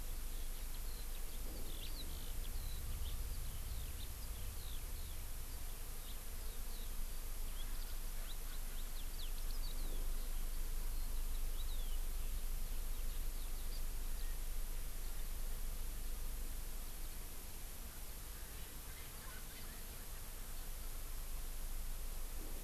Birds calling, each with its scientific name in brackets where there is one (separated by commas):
Eurasian Skylark (Alauda arvensis), Erckel's Francolin (Pternistis erckelii)